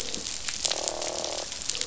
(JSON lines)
{"label": "biophony, croak", "recorder": "SoundTrap 500"}